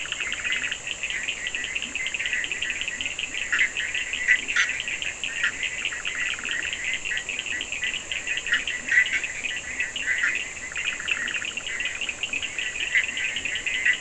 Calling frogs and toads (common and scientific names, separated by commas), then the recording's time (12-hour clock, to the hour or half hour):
Bischoff's tree frog (Boana bischoffi), Leptodactylus latrans, Cochran's lime tree frog (Sphaenorhynchus surdus)
4am